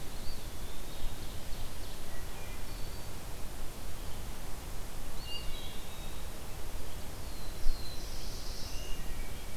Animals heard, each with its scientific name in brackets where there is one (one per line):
Wood Thrush (Hylocichla mustelina)
Black-throated Blue Warbler (Setophaga caerulescens)
Eastern Wood-Pewee (Contopus virens)
Ovenbird (Seiurus aurocapilla)